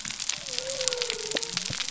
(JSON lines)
{"label": "biophony", "recorder": "SoundTrap 300"}